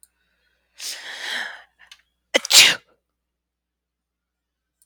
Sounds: Sneeze